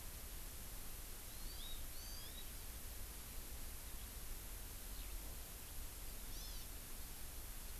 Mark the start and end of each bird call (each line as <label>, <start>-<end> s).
Hawaii Amakihi (Chlorodrepanis virens), 1.3-2.5 s
Eurasian Skylark (Alauda arvensis), 5.0-5.2 s
Hawaii Amakihi (Chlorodrepanis virens), 6.3-6.7 s